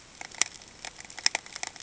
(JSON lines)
{"label": "ambient", "recorder": "HydroMoth"}